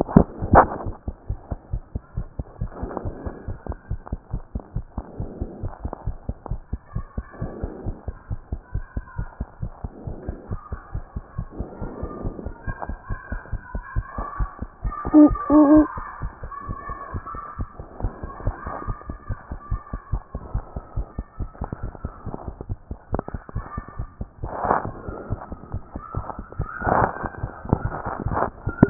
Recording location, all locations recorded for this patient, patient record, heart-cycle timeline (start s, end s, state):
tricuspid valve (TV)
aortic valve (AV)+pulmonary valve (PV)+tricuspid valve (TV)+mitral valve (MV)
#Age: Child
#Sex: Male
#Height: 109.0 cm
#Weight: 22.9 kg
#Pregnancy status: False
#Murmur: Absent
#Murmur locations: nan
#Most audible location: nan
#Systolic murmur timing: nan
#Systolic murmur shape: nan
#Systolic murmur grading: nan
#Systolic murmur pitch: nan
#Systolic murmur quality: nan
#Diastolic murmur timing: nan
#Diastolic murmur shape: nan
#Diastolic murmur grading: nan
#Diastolic murmur pitch: nan
#Diastolic murmur quality: nan
#Outcome: Abnormal
#Campaign: 2014 screening campaign
0.00	1.18	unannotated
1.18	1.28	diastole
1.28	1.38	S1
1.38	1.50	systole
1.50	1.57	S2
1.57	1.72	diastole
1.72	1.82	S1
1.82	1.94	systole
1.94	2.02	S2
2.02	2.16	diastole
2.16	2.26	S1
2.26	2.38	systole
2.38	2.46	S2
2.46	2.60	diastole
2.60	2.70	S1
2.70	2.82	systole
2.82	2.90	S2
2.90	3.04	diastole
3.04	3.14	S1
3.14	3.24	systole
3.24	3.34	S2
3.34	3.48	diastole
3.48	3.58	S1
3.58	3.68	systole
3.68	3.76	S2
3.76	3.90	diastole
3.90	4.00	S1
4.00	4.10	systole
4.10	4.18	S2
4.18	4.32	diastole
4.32	4.42	S1
4.42	4.54	systole
4.54	4.62	S2
4.62	4.74	diastole
4.74	4.84	S1
4.84	4.96	systole
4.96	5.04	S2
5.04	5.18	diastole
5.18	5.30	S1
5.30	5.40	systole
5.40	5.48	S2
5.48	5.62	diastole
5.62	5.72	S1
5.72	5.82	systole
5.82	5.92	S2
5.92	6.06	diastole
6.06	6.16	S1
6.16	6.28	systole
6.28	6.36	S2
6.36	6.50	diastole
6.50	6.60	S1
6.60	6.72	systole
6.72	6.80	S2
6.80	6.94	diastole
6.94	7.06	S1
7.06	7.16	systole
7.16	7.26	S2
7.26	7.40	diastole
7.40	7.52	S1
7.52	7.62	systole
7.62	7.70	S2
7.70	7.86	diastole
7.86	7.96	S1
7.96	8.06	systole
8.06	8.16	S2
8.16	8.30	diastole
8.30	8.40	S1
8.40	8.50	systole
8.50	8.60	S2
8.60	8.74	diastole
8.74	8.84	S1
8.84	8.96	systole
8.96	9.04	S2
9.04	9.18	diastole
9.18	9.28	S1
9.28	9.40	systole
9.40	9.48	S2
9.48	9.62	diastole
9.62	9.72	S1
9.72	9.84	systole
9.84	9.92	S2
9.92	10.06	diastole
10.06	10.16	S1
10.16	10.28	systole
10.28	10.36	S2
10.36	10.50	diastole
10.50	10.60	S1
10.60	10.72	systole
10.72	10.80	S2
10.80	10.94	diastole
10.94	11.04	S1
11.04	11.14	systole
11.14	11.24	S2
11.24	11.38	diastole
11.38	11.48	S1
11.48	11.58	systole
11.58	11.68	S2
11.68	11.84	diastole
11.84	11.92	S1
11.92	12.02	systole
12.02	12.10	S2
12.10	12.24	diastole
12.24	12.34	S1
12.34	12.46	systole
12.46	12.54	S2
12.54	12.68	diastole
12.68	12.76	S1
12.76	12.88	systole
12.88	12.98	S2
12.98	13.11	diastole
13.11	28.90	unannotated